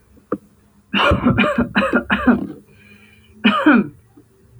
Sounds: Cough